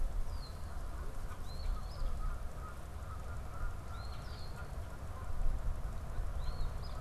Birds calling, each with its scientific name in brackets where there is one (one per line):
Canada Goose (Branta canadensis)
unidentified bird
Eastern Phoebe (Sayornis phoebe)